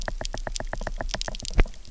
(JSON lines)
{"label": "biophony, knock", "recorder": "SoundTrap 300"}